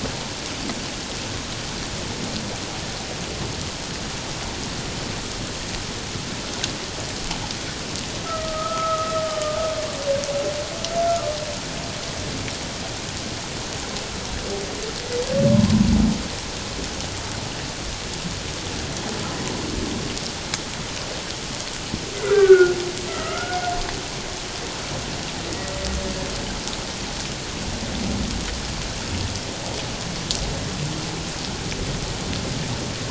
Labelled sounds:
8.2	9.6	humpback whale, 1.2 to 1.4 kHz
15.5	15.8	humpback whale, 0.94 to 1.1 kHz
22.3	23.6	humpback whale, 1.1 to 1.6 kHz

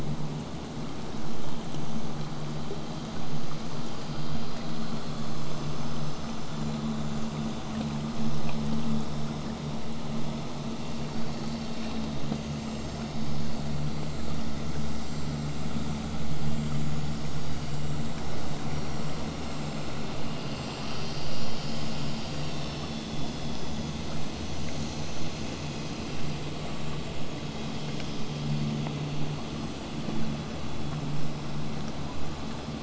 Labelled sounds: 24.1	29.1	vessel noise, 0 to 8.0 kHz

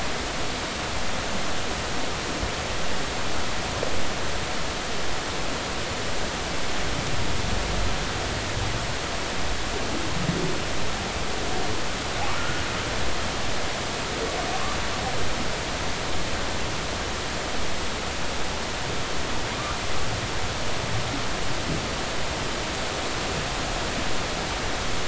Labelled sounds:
13.3	13.6	humpback whale, 1.3 to 1.5 kHz

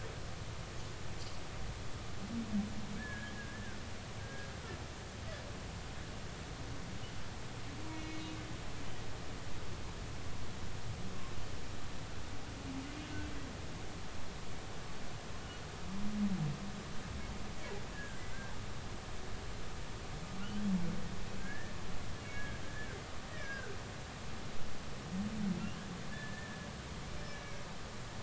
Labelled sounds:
3.0	3.8	humpback whale, 1.4 to 1.8 kHz
4.2	4.5	humpback whale, 1.6 to 1.7 kHz
7.9	8.3	humpback whale, 2.1 to 4.2 kHz
17.9	18.2	humpback whale, 1.5 to 1.8 kHz
21.4	21.7	humpback whale, 1.5 to 1.9 kHz
22.2	22.9	humpback whale, 1.6 to 2.3 kHz
23.3	23.8	humpback whale, 1.4 to 2.0 kHz
26.1	27.7	humpback whale, 1.7 to 2.4 kHz

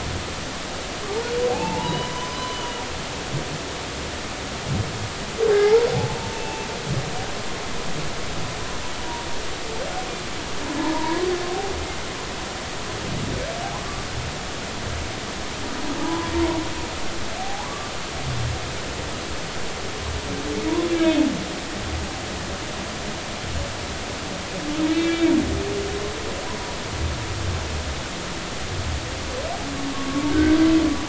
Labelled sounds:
1.5	2.8	humpback whale, 0.80 to 4.0 kHz
5.5	6.7	humpback whale, 0.80 to 2.7 kHz
10.9	11.3	humpback whale, 0.86 to 1.1 kHz
13.6	14.0	humpback whale, 0.80 to 1.2 kHz
16.0	16.3	humpback whale, 0.83 to 1.1 kHz
17.4	17.9	humpback whale, 0.80 to 1.2 kHz
20.9	21.2	humpback whale, 2.1 to 2.4 kHz
24.9	25.3	humpback whale, 2.2 to 3.4 kHz
29.9	30.6	humpback whale, 1.0 to 1.6 kHz

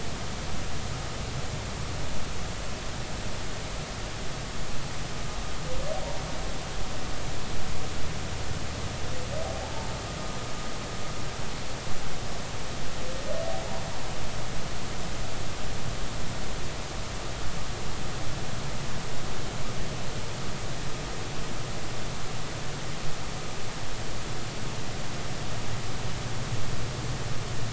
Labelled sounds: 9.6	9.9	humpback whale, 0.80 to 0.96 kHz

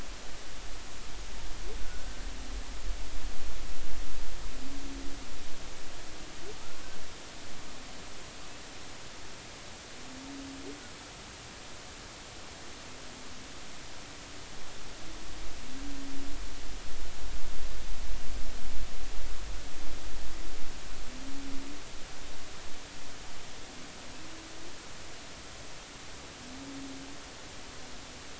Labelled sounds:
1.8	2.2	humpback whale, 1.4 to 1.6 kHz

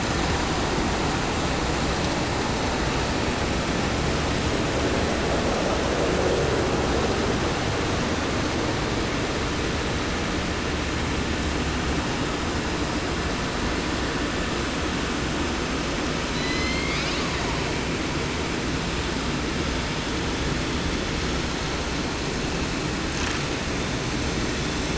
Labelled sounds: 16.3	17.6	killer whale, southern resident, 0.30 to 8.0 kHz

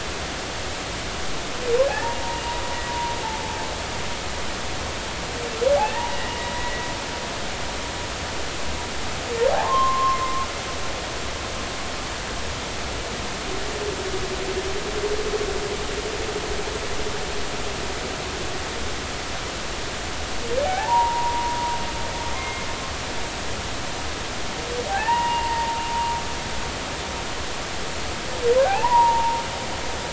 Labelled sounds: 2.9	4.1	humpback whale, 0.80 to 1.0 kHz
5.9	6.8	humpback whale, 0.80 to 2.0 kHz
9.5	10.5	humpback whale, 0.80 to 1.1 kHz
20.6	21.6	humpback whale, 0.80 to 1.0 kHz
22.4	22.7	humpback whale, 2.1 to 2.2 kHz
24.9	25.5	humpback whale, 1.5 to 2.9 kHz
25.9	26.8	humpback whale, 0.80 to 1.0 kHz
28.6	29.4	humpback whale, 0.80 to 1.1 kHz

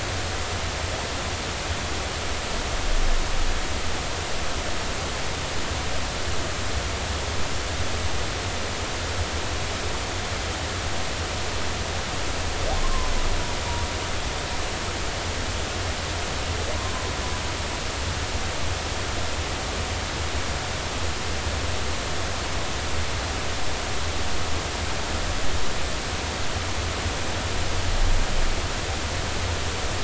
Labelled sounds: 12.8	13.1	humpback whale, 0.90 to 1.1 kHz

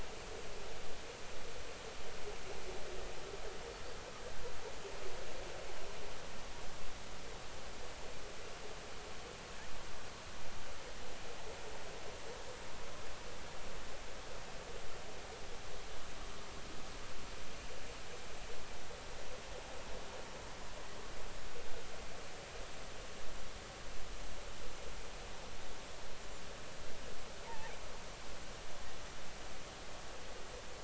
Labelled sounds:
27.4	27.7	killer whale, 0.80 to 0.99 kHz

